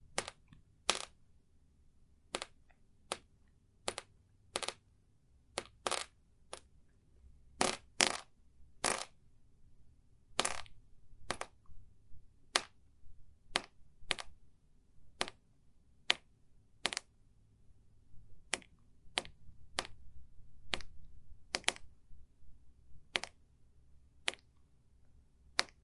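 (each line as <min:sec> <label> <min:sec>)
0:00.1 Liquid drops fall onto a surface at intervals of one to two seconds. 0:25.7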